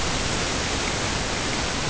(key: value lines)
label: ambient
recorder: HydroMoth